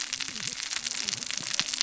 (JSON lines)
{"label": "biophony, cascading saw", "recorder": "SoundTrap 600 or HydroMoth"}